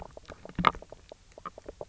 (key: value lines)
label: biophony, knock croak
recorder: SoundTrap 300